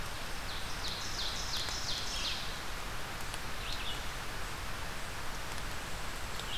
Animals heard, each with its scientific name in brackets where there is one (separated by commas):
Ovenbird (Seiurus aurocapilla), Red-eyed Vireo (Vireo olivaceus), unidentified call